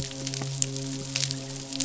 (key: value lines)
label: biophony, midshipman
recorder: SoundTrap 500